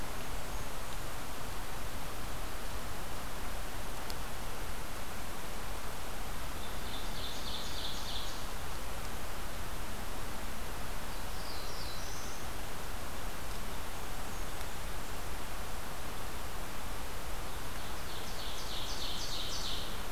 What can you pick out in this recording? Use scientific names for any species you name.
Setophaga fusca, Seiurus aurocapilla, Setophaga caerulescens